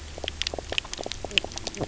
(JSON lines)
{"label": "biophony, knock croak", "recorder": "SoundTrap 300"}